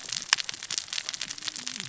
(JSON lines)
{"label": "biophony, cascading saw", "recorder": "SoundTrap 600 or HydroMoth"}